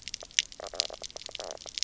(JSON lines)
{"label": "biophony, knock croak", "recorder": "SoundTrap 300"}